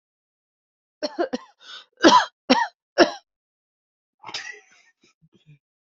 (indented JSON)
{
  "expert_labels": [
    {
      "quality": "good",
      "cough_type": "dry",
      "dyspnea": false,
      "wheezing": false,
      "stridor": false,
      "choking": false,
      "congestion": false,
      "nothing": true,
      "diagnosis": "healthy cough",
      "severity": "pseudocough/healthy cough"
    }
  ],
  "age": 44,
  "gender": "female",
  "respiratory_condition": false,
  "fever_muscle_pain": false,
  "status": "healthy"
}